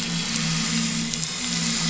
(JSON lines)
{"label": "anthrophony, boat engine", "recorder": "SoundTrap 500"}